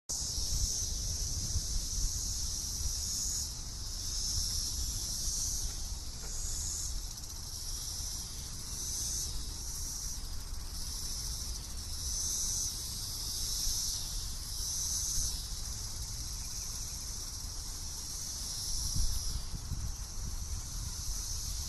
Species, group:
Magicicada cassini
Cicadidae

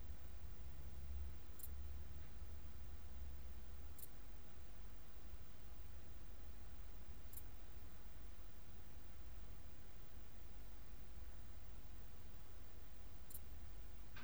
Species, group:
Pholidoptera fallax
Orthoptera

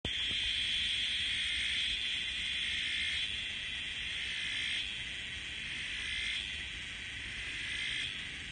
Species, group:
Psaltoda mossi
Cicadidae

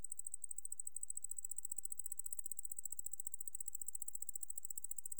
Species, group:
Decticus albifrons
Orthoptera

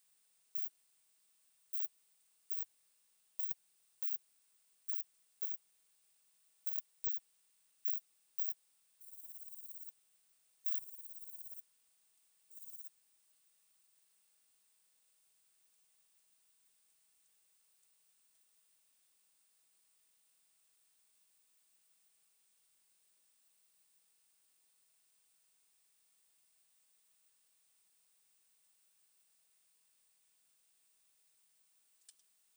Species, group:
Poecilimon veluchianus
Orthoptera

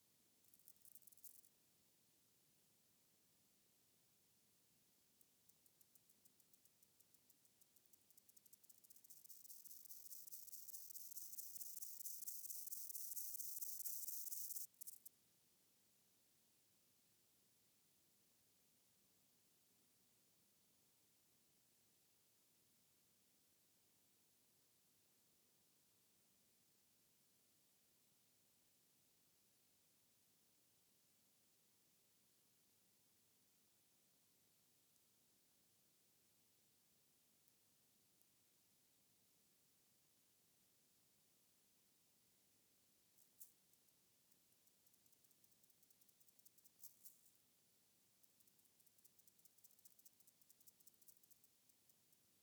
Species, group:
Gomphocerippus rufus
Orthoptera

